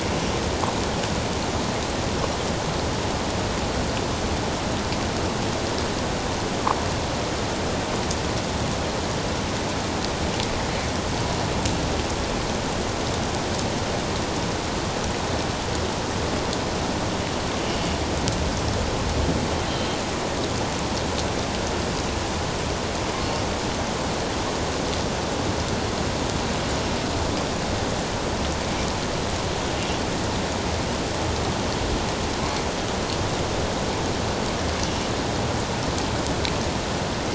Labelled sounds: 17.6	17.9	killer whale, northern resident, A clan, AB subclan, 2.9 to 3.1 kHz
34.8	35.1	killer whale, northern resident, A clan, AB subclan, 2.8 to 2.9 kHz

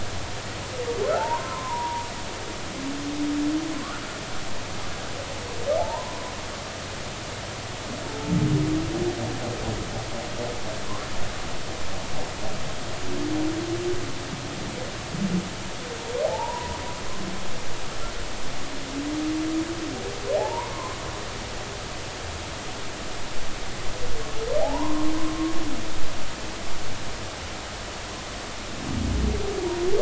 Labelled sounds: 1.1	2.1	humpback whale, 0.80 to 1.1 kHz
3.7	4.0	humpback whale, 1.0 to 1.5 kHz
5.8	6.2	humpback whale, 0.80 to 1.1 kHz
16.2	16.8	humpback whale, 0.80 to 1.1 kHz
20.4	21.0	humpback whale, 0.80 to 1.2 kHz
24.6	25.1	humpback whale, 0.80 to 1.1 kHz

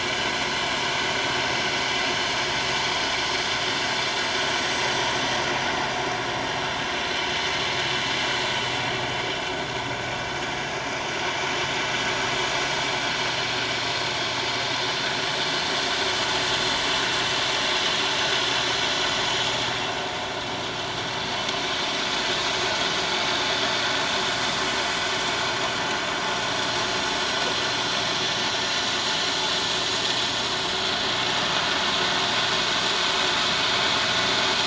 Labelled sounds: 24.2	24.5	vessel noise, 6.9 to 7.1 kHz

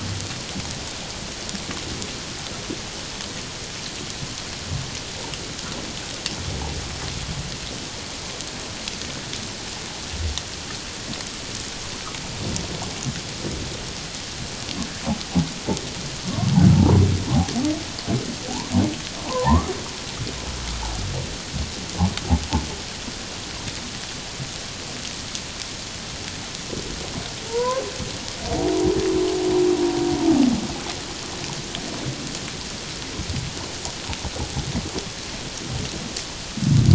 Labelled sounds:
16.7	17.0	humpback whale, 0.78 to 1.0 kHz
19.3	19.7	humpback whale, 0.78 to 1.3 kHz
27.5	27.8	humpback whale, 0.88 to 1.1 kHz

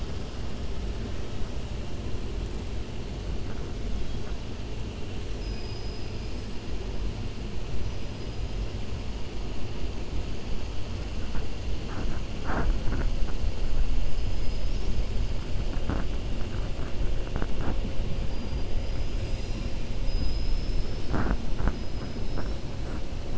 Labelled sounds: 5.3	6.4	killer whale, 4.3 to 5.9 kHz
20.0	21.2	killer whale, 3.8 to 5.3 kHz

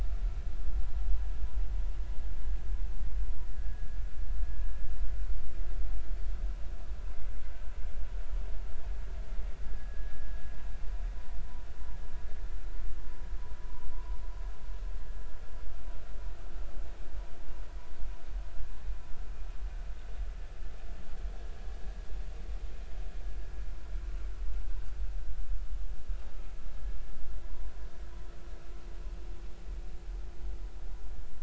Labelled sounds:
4.6	4.9	vessel noise, 1.5 to 1.7 kHz
9.7	10.1	vessel noise, 1.5 to 1.8 kHz

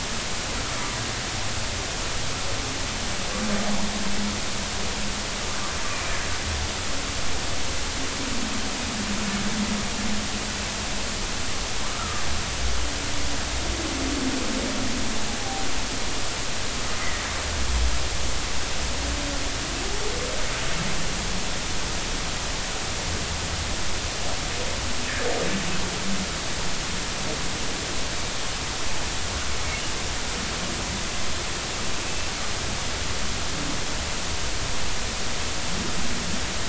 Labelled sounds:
11.8	12.2	humpback whale, 1.1 to 1.4 kHz
32.1	32.3	humpback whale, 2.6 to 2.7 kHz

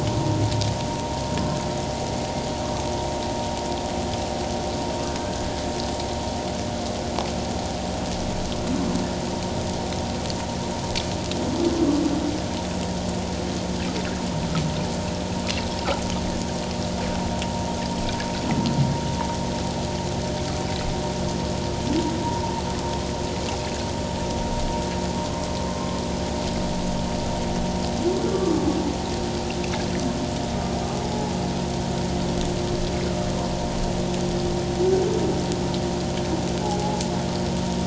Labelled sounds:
5.2	5.4	humpback whale, 1.5 to 1.7 kHz
22.2	22.5	vessel noise, 0.84 to 1.0 kHz
25.7	26.0	humpback whale, 1.0 to 1.1 kHz
28.3	28.6	humpback whale, 1.1 to 1.2 kHz
36.6	37.0	humpback whale, 0.78 to 0.91 kHz

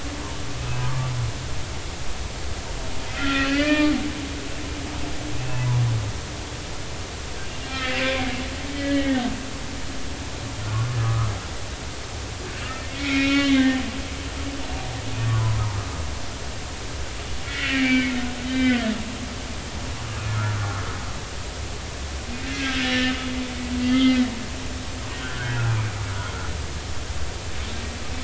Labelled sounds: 0.8	1.1	humpback whale, 1.1 to 1.3 kHz
3.1	3.9	humpback whale, 1.1 to 3.2 kHz
5.4	5.8	humpback whale, 0.83 to 2.7 kHz
7.8	8.3	humpback whale, 1.9 to 2.4 kHz
8.7	9.2	humpback whale, 1.8 to 3.2 kHz
10.6	11.3	humpback whale, 0.99 to 1.5 kHz
12.8	13.8	humpback whale, 1.1 to 4.0 kHz
15.3	15.6	humpback whale, 0.86 to 1.3 kHz
17.5	18.9	humpback whale, 1.3 to 4.0 kHz
20.3	20.6	humpback whale, 1.2 to 1.5 kHz
22.5	23.1	humpback whale, 1.5 to 2.9 kHz
23.8	24.2	humpback whale, 2.0 to 3.3 kHz
25.2	26.0	humpback whale, 1.3 to 2.5 kHz

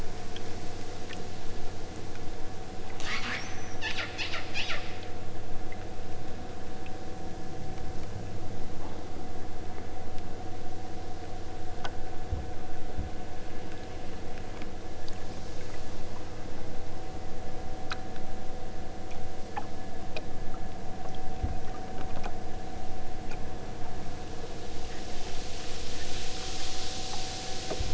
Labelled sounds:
3.0	5.1	killer whale, southern Alaska resident, 0.61 to 8.0 kHz

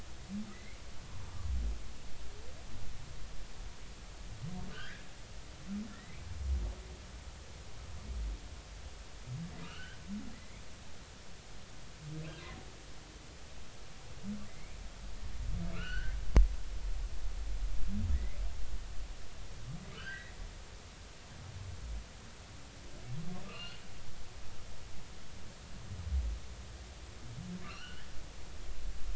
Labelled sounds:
0.5	0.8	humpback whale, 1.9 to 2.3 kHz
4.7	5.0	humpback whale, 1.4 to 2.1 kHz
5.9	6.3	humpback whale, 1.7 to 2.6 kHz
9.6	10.6	humpback whale, 1.2 to 3.2 kHz
14.5	14.8	humpback whale, 1.9 to 2.5 kHz
15.7	16.1	humpback whale, 1.2 to 3.2 kHz
18.1	18.4	humpback whale, 1.7 to 2.3 kHz
19.9	20.3	humpback whale, 1.2 to 2.0 kHz
23.5	23.8	humpback whale, 2.4 to 4.4 kHz
27.6	28.0	humpback whale, 1.1 to 3.1 kHz

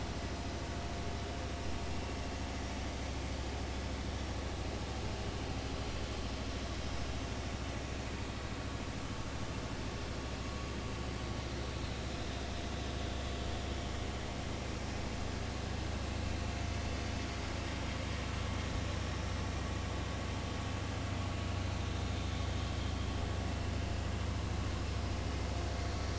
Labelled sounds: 1.9	2.2	vessel noise, 2.7 to 2.8 kHz
23.5	23.8	vessel noise, 2.6 to 3.0 kHz

